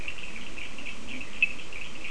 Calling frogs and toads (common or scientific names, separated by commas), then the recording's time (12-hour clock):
Leptodactylus latrans, Cochran's lime tree frog
4:00am